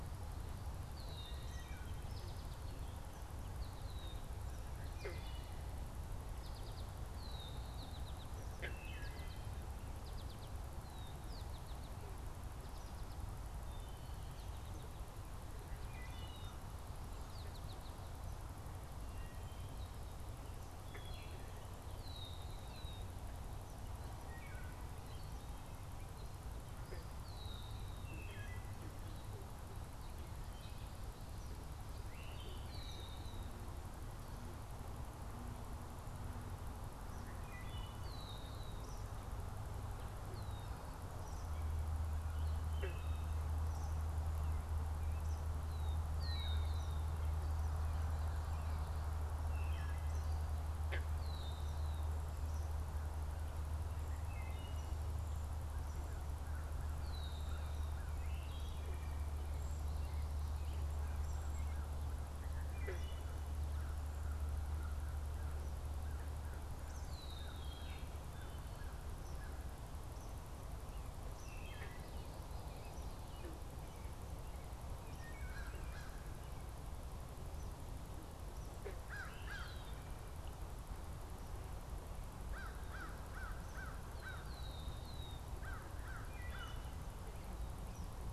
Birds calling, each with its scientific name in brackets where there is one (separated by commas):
Cedar Waxwing (Bombycilla cedrorum), American Crow (Corvus brachyrhynchos), Red-winged Blackbird (Agelaius phoeniceus), Eastern Kingbird (Tyrannus tyrannus), Wood Thrush (Hylocichla mustelina), American Goldfinch (Spinus tristis)